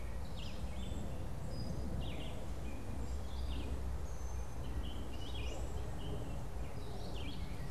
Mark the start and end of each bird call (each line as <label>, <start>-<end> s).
Gray Catbird (Dumetella carolinensis), 0.0-7.7 s
Red-eyed Vireo (Vireo olivaceus), 0.1-7.7 s